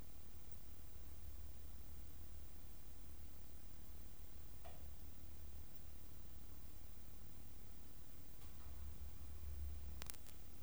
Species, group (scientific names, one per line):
Poecilimon zwicki
Orthoptera